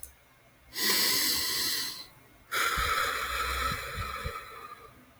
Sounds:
Sigh